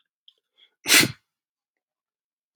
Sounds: Sneeze